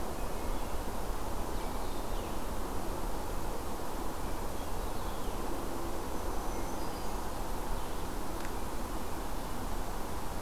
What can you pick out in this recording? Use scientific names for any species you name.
Catharus guttatus, Setophaga virens